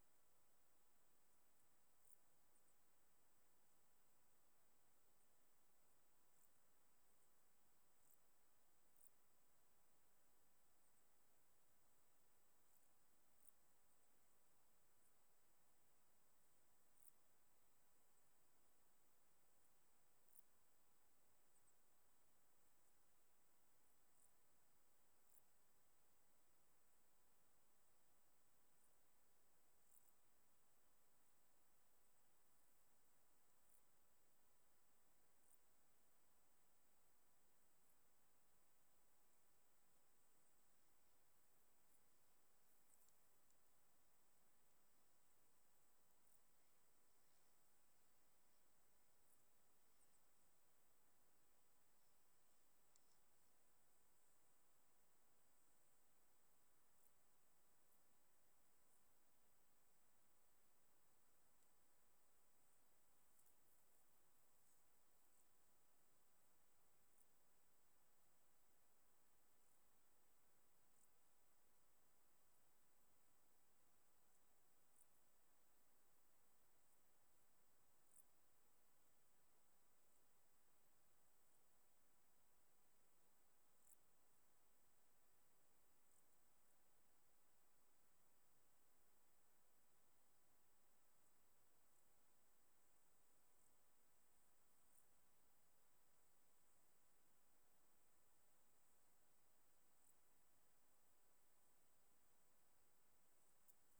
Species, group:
Lluciapomaresius stalii, Orthoptera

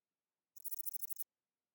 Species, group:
Sorapagus catalaunicus, Orthoptera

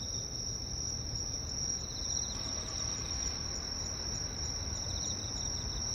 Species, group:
Teleogryllus emma, Orthoptera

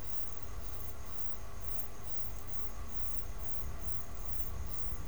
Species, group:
Ctenodecticus major, Orthoptera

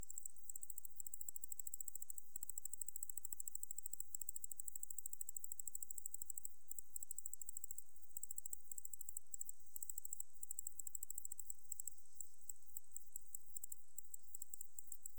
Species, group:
Decticus albifrons, Orthoptera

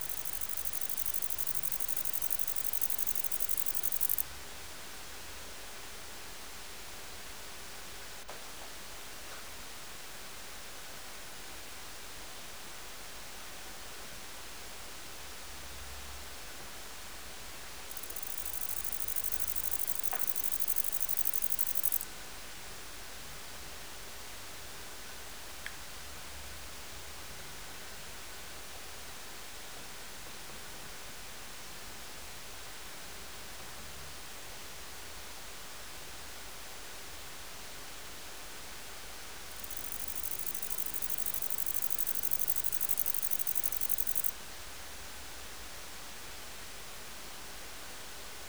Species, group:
Bicolorana bicolor, Orthoptera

